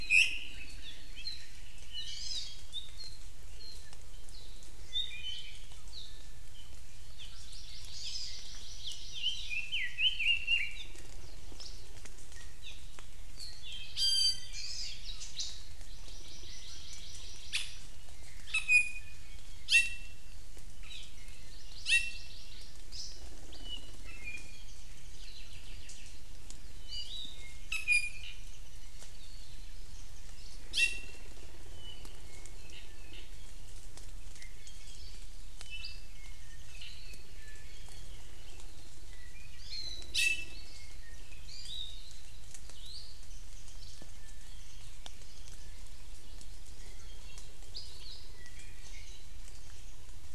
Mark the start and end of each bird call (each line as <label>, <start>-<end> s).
Apapane (Himatione sanguinea), 0.8-1.5 s
Hawaii Amakihi (Chlorodrepanis virens), 1.1-1.5 s
Apapane (Himatione sanguinea), 1.9-2.2 s
Hawaii Amakihi (Chlorodrepanis virens), 2.0-2.6 s
Apapane (Himatione sanguinea), 2.7-3.9 s
Apapane (Himatione sanguinea), 4.3-6.2 s
Apapane (Himatione sanguinea), 6.5-6.8 s
Apapane (Himatione sanguinea), 7.2-7.4 s
Hawaii Amakihi (Chlorodrepanis virens), 7.2-9.7 s
Apapane (Himatione sanguinea), 8.0-8.2 s
Apapane (Himatione sanguinea), 8.8-9.1 s
Red-billed Leiothrix (Leiothrix lutea), 9.1-10.9 s
Apapane (Himatione sanguinea), 10.7-10.9 s
Hawaii Creeper (Loxops mana), 11.5-11.8 s
Apapane (Himatione sanguinea), 12.6-12.9 s
Apapane (Himatione sanguinea), 13.3-13.7 s
Iiwi (Drepanis coccinea), 13.9-14.6 s
Hawaii Amakihi (Chlorodrepanis virens), 14.5-15.0 s
Apapane (Himatione sanguinea), 15.0-15.3 s
Northern Cardinal (Cardinalis cardinalis), 15.1-15.6 s
Hawaii Amakihi (Chlorodrepanis virens), 15.8-18.0 s
Iiwi (Drepanis coccinea), 17.4-17.8 s
Iiwi (Drepanis coccinea), 18.4-20.2 s
Apapane (Himatione sanguinea), 20.8-21.1 s
Hawaii Amakihi (Chlorodrepanis virens), 21.4-22.8 s
Iiwi (Drepanis coccinea), 21.8-22.3 s
Hawaii Creeper (Loxops mana), 22.9-23.2 s
Iiwi (Drepanis coccinea), 23.5-26.2 s
Warbling White-eye (Zosterops japonicus), 24.5-25.7 s
Iiwi (Drepanis coccinea), 26.8-28.4 s
Warbling White-eye (Zosterops japonicus), 27.8-29.0 s
Warbling White-eye (Zosterops japonicus), 29.9-30.6 s
Iiwi (Drepanis coccinea), 30.7-31.3 s
Apapane (Himatione sanguinea), 31.6-33.7 s
Iiwi (Drepanis coccinea), 34.3-35.2 s
Apapane (Himatione sanguinea), 35.5-37.4 s
Hawaii Creeper (Loxops mana), 35.8-36.0 s
Warbling White-eye (Zosterops japonicus), 36.1-37.3 s
Iiwi (Drepanis coccinea), 37.3-38.1 s
Iiwi (Drepanis coccinea), 39.6-41.0 s
Iiwi (Drepanis coccinea), 41.4-42.1 s
Hawaii Akepa (Loxops coccineus), 42.7-43.2 s
Warbling White-eye (Zosterops japonicus), 43.2-45.7 s
Iiwi (Drepanis coccinea), 46.7-47.5 s
Hawaii Creeper (Loxops mana), 47.7-48.3 s
Iiwi (Drepanis coccinea), 48.3-49.1 s